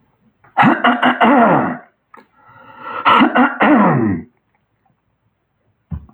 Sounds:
Throat clearing